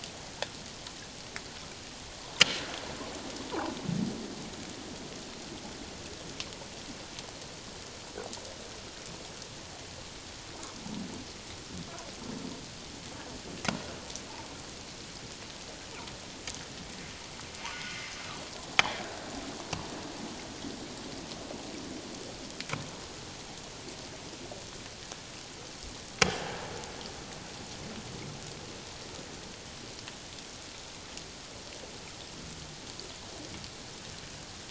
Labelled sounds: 17.7	18.0	humpback whale, 1.4 to 1.5 kHz

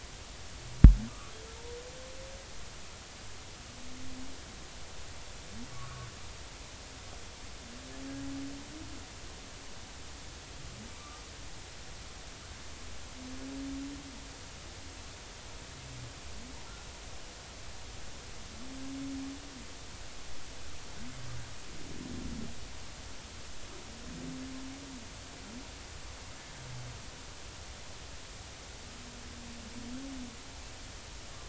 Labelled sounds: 1.1	1.3	humpback whale, 1.1 to 1.5 kHz
5.7	6.1	humpback whale, 1.1 to 1.5 kHz
10.9	11.2	humpback whale, 1.1 to 1.2 kHz

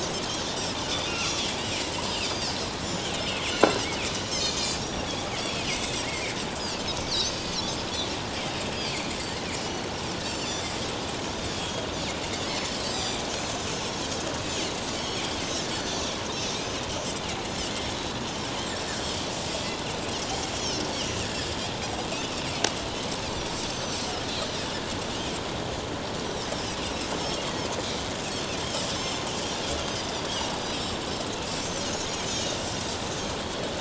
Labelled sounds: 1.1	1.4	Pacific white-sided dolphin, 2.3 to 2.9 kHz
2.2	3.1	Pacific white-sided dolphin, 4.2 to 7.2 kHz
3.5	6.3	Pacific white-sided dolphin, 1.8 to 7.0 kHz
7.0	7.7	Pacific white-sided dolphin, 2.4 to 6.7 kHz
8.4	9.1	Pacific white-sided dolphin, 3.6 to 5.0 kHz
9.6	10.7	Pacific white-sided dolphin, 2.9 to 7.4 kHz
11.6	14.0	Pacific white-sided dolphin, 3.1 to 7.8 kHz
14.9	16.0	Pacific white-sided dolphin, 4.3 to 6.3 kHz
19.5	19.8	Pacific white-sided dolphin, 2.6 to 2.8 kHz
23.7	24.0	Pacific white-sided dolphin, 5.8 to 6.2 kHz
26.5	26.8	Pacific white-sided dolphin, 4.8 to 5.6 kHz
28.9	29.2	Pacific white-sided dolphin, 5.2 to 7.5 kHz
31.6	32.7	Pacific white-sided dolphin, 2.7 to 6.9 kHz

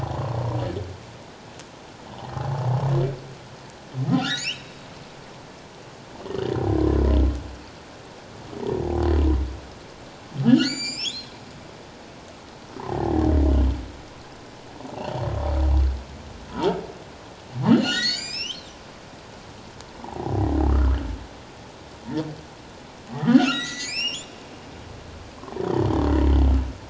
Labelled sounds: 2.4	2.6	humpback whale, 0.78 to 0.91 kHz
4.2	4.8	humpback whale, 1.2 to 4.2 kHz
6.2	6.5	humpback whale, 2.8 to 3.2 kHz
10.4	11.3	humpback whale, 1.3 to 7.6 kHz
12.8	13.2	humpback whale, 0.78 to 1.9 kHz
14.9	15.2	humpback whale, 2.6 to 3.2 kHz
16.5	16.8	humpback whale, 0.84 to 1.0 kHz
17.6	18.7	humpback whale, 1.7 to 7.7 kHz
20.0	20.3	humpback whale, 0.78 to 1.0 kHz
20.7	21.0	humpback whale, 1.1 to 1.5 kHz
23.1	24.3	humpback whale, 1.1 to 8.0 kHz
25.6	25.8	humpback whale, 2.9 to 3.7 kHz

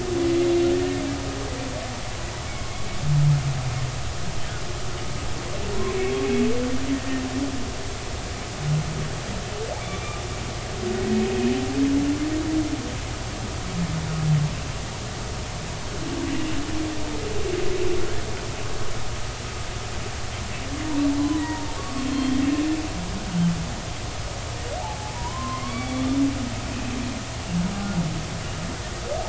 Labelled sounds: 9.7	10.2	humpback whale, 2.2 to 2.4 kHz
16.3	16.6	humpback whale, 2.6 to 2.9 kHz
21.2	22.4	humpback whale, 0.86 to 4.3 kHz
24.8	27.0	humpback whale, 0.80 to 2.7 kHz

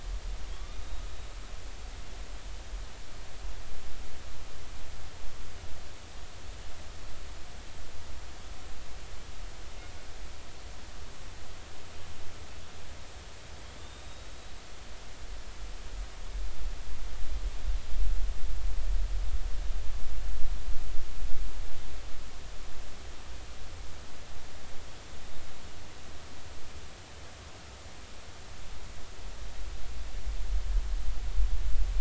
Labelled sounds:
0.5	1.4	killer whale, northern resident, A clan, AA subclan, 3.2 to 3.8 kHz
13.7	14.5	killer whale, northern resident, A clan, AA subclan, 3.2 to 3.9 kHz

